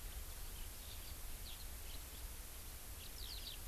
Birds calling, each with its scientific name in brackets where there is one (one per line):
House Finch (Haemorhous mexicanus)